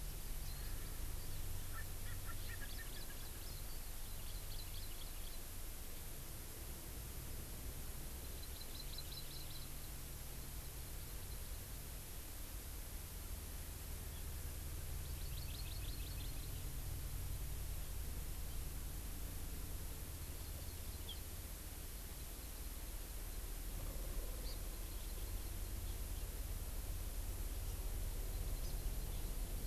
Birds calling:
Erckel's Francolin (Pternistis erckelii)
Hawaii Amakihi (Chlorodrepanis virens)
Warbling White-eye (Zosterops japonicus)

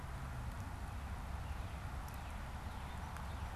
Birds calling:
Song Sparrow (Melospiza melodia)
Northern Cardinal (Cardinalis cardinalis)
American Robin (Turdus migratorius)

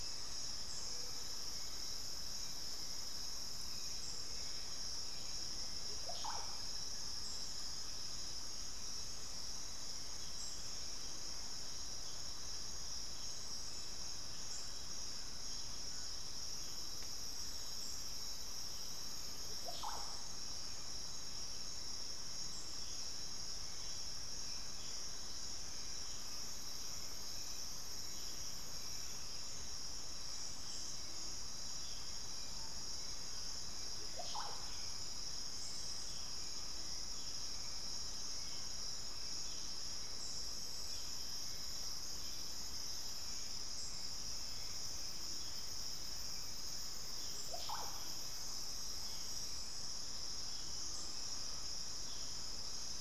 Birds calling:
Undulated Tinamou (Crypturellus undulatus)
Screaming Piha (Lipaugus vociferans)
unidentified bird
Collared Trogon (Trogon collaris)
Hauxwell's Thrush (Turdus hauxwelli)
Russet-backed Oropendola (Psarocolius angustifrons)

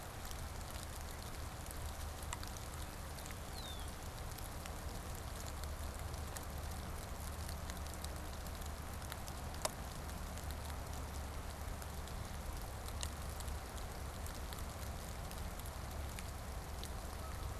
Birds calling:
Red-winged Blackbird (Agelaius phoeniceus)
Canada Goose (Branta canadensis)

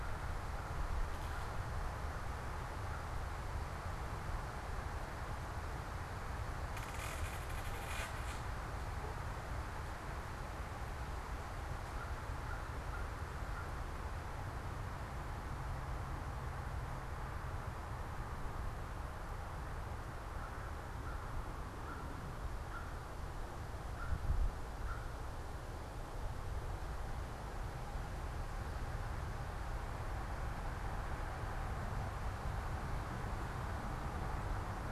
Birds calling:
American Crow (Corvus brachyrhynchos)

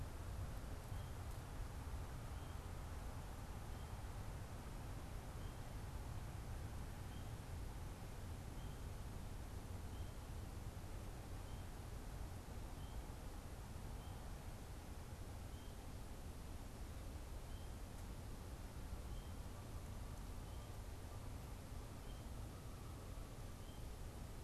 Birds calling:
Canada Goose (Branta canadensis)

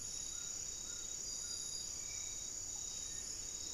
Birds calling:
Amazonian Trogon (Trogon ramonianus)
Black-faced Antthrush (Formicarius analis)
Spot-winged Antshrike (Pygiptila stellaris)

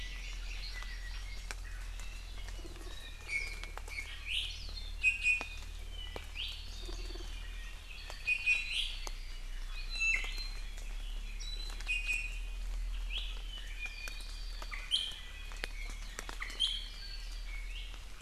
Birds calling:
Hawaii Amakihi (Chlorodrepanis virens)
Iiwi (Drepanis coccinea)
Warbling White-eye (Zosterops japonicus)

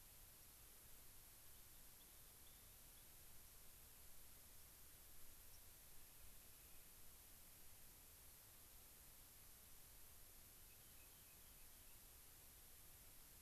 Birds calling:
Rock Wren (Salpinctes obsoletus)
White-crowned Sparrow (Zonotrichia leucophrys)

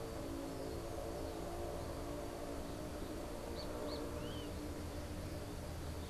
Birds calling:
Great Kiskadee (Pitangus sulphuratus)

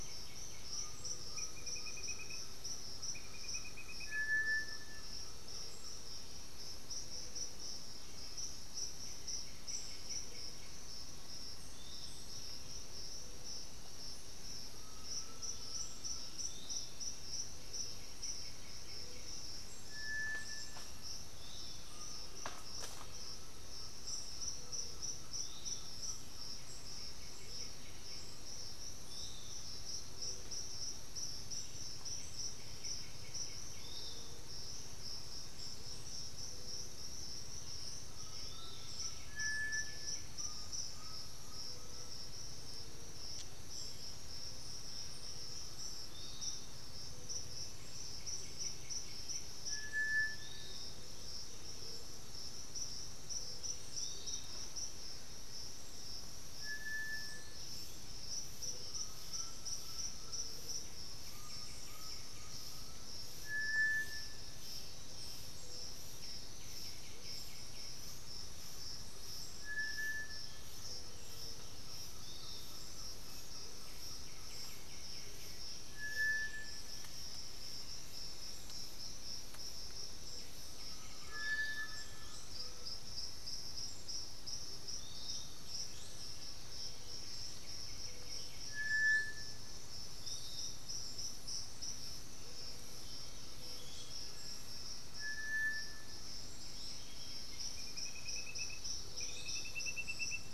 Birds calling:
Piratic Flycatcher (Legatus leucophaius)
Elegant Woodcreeper (Xiphorhynchus elegans)
White-winged Becard (Pachyramphus polychopterus)
Amazonian Motmot (Momotus momota)
Undulated Tinamou (Crypturellus undulatus)
Yellow-crowned Tyrannulet (Tyrannulus elatus)
unidentified bird
Thrush-like Wren (Campylorhynchus turdinus)
Great Antshrike (Taraba major)

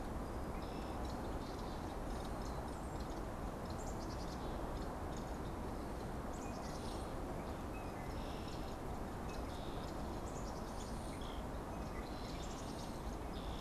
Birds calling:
Black-capped Chickadee (Poecile atricapillus)
unidentified bird

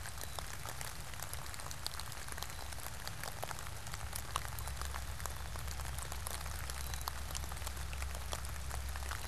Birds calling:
Black-capped Chickadee (Poecile atricapillus)

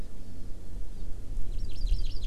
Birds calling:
Hawaii Amakihi (Chlorodrepanis virens)

